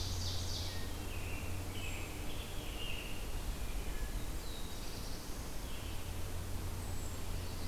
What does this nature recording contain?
Ovenbird, American Robin, Wood Thrush, Black-throated Blue Warbler